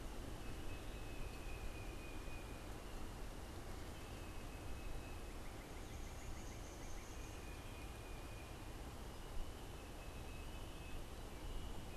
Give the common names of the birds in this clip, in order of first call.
Tufted Titmouse, Northern Cardinal, Black-capped Chickadee